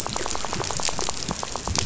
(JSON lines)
{"label": "biophony, rattle", "recorder": "SoundTrap 500"}